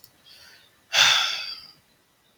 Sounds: Sigh